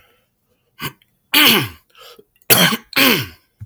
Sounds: Throat clearing